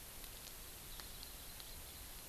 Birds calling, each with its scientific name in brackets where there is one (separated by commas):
Hawaii Amakihi (Chlorodrepanis virens)